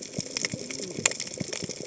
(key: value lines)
label: biophony, cascading saw
recorder: HydroMoth